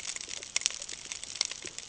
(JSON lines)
{"label": "ambient", "recorder": "HydroMoth"}